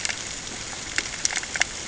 {"label": "ambient", "recorder": "HydroMoth"}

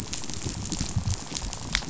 {"label": "biophony, rattle", "recorder": "SoundTrap 500"}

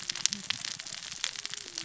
{"label": "biophony, cascading saw", "recorder": "SoundTrap 600 or HydroMoth"}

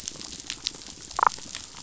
{"label": "biophony", "recorder": "SoundTrap 500"}
{"label": "biophony, damselfish", "recorder": "SoundTrap 500"}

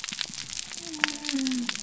{"label": "biophony", "recorder": "SoundTrap 300"}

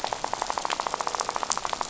{"label": "biophony, rattle", "recorder": "SoundTrap 500"}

